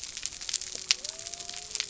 {"label": "biophony", "recorder": "SoundTrap 300"}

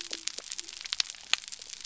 {"label": "biophony", "recorder": "SoundTrap 300"}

